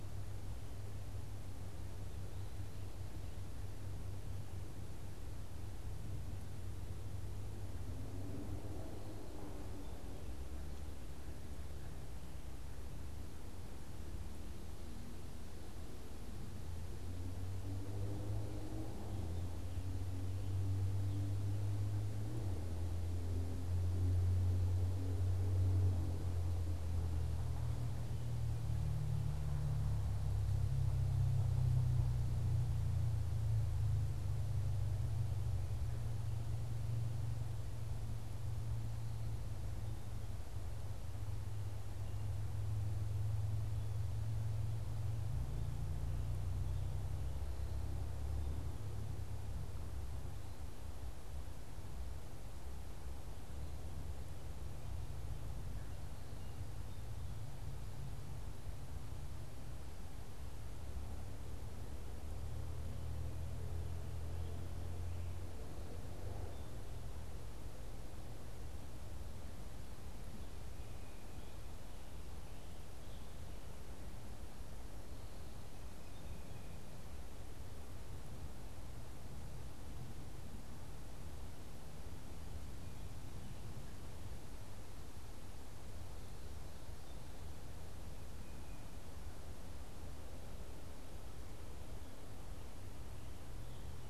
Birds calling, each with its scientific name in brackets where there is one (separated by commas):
Tufted Titmouse (Baeolophus bicolor)